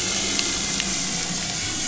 {"label": "anthrophony, boat engine", "recorder": "SoundTrap 500"}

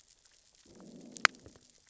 {"label": "biophony, growl", "recorder": "SoundTrap 600 or HydroMoth"}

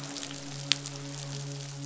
{"label": "biophony, midshipman", "recorder": "SoundTrap 500"}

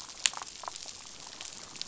{"label": "biophony, damselfish", "recorder": "SoundTrap 500"}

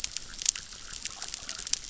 {"label": "biophony, chorus", "recorder": "SoundTrap 600"}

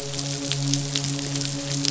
{"label": "biophony, midshipman", "recorder": "SoundTrap 500"}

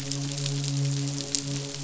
{"label": "biophony, midshipman", "recorder": "SoundTrap 500"}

